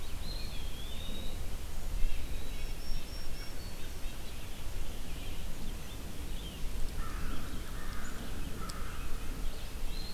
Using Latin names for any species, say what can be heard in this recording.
Contopus virens, Sitta canadensis, Setophaga virens, Piranga olivacea, Corvus brachyrhynchos